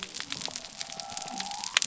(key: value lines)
label: biophony
recorder: SoundTrap 300